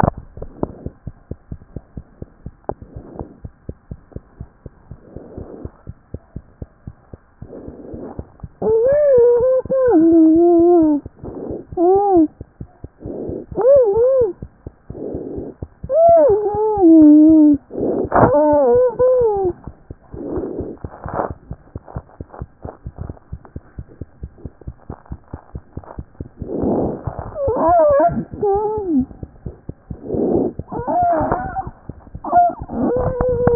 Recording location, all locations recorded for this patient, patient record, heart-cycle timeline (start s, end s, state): mitral valve (MV)
aortic valve (AV)+pulmonary valve (PV)+mitral valve (MV)
#Age: Child
#Sex: Female
#Height: 83.0 cm
#Weight: 11.1 kg
#Pregnancy status: False
#Murmur: Absent
#Murmur locations: nan
#Most audible location: nan
#Systolic murmur timing: nan
#Systolic murmur shape: nan
#Systolic murmur grading: nan
#Systolic murmur pitch: nan
#Systolic murmur quality: nan
#Diastolic murmur timing: nan
#Diastolic murmur shape: nan
#Diastolic murmur grading: nan
#Diastolic murmur pitch: nan
#Diastolic murmur quality: nan
#Outcome: Normal
#Campaign: 2014 screening campaign
0.00	1.02	unannotated
1.02	1.08	diastole
1.08	1.16	S1
1.16	1.30	systole
1.30	1.36	S2
1.36	1.52	diastole
1.52	1.60	S1
1.60	1.76	systole
1.76	1.80	S2
1.80	1.98	diastole
1.98	2.06	S1
2.06	2.22	systole
2.22	2.24	S2
2.24	2.46	diastole
2.46	2.54	S1
2.54	2.70	systole
2.70	2.74	S2
2.74	2.96	diastole
2.96	3.04	S1
3.04	3.20	systole
3.20	3.26	S2
3.26	3.42	diastole
3.42	33.55	unannotated